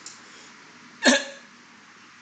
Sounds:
Throat clearing